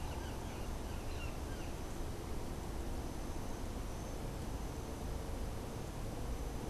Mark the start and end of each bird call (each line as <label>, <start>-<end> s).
Brown Jay (Psilorhinus morio), 0.0-1.8 s